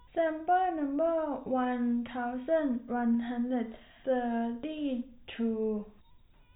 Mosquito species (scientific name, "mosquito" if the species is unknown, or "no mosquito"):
no mosquito